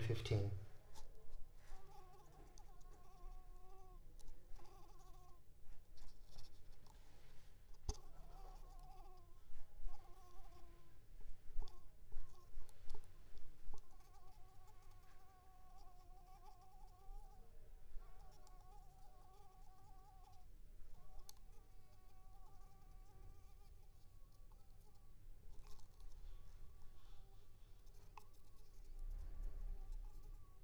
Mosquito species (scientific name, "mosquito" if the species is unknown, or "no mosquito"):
Anopheles squamosus